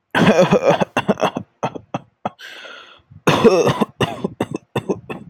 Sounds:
Cough